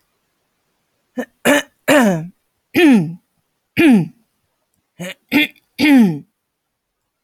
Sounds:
Throat clearing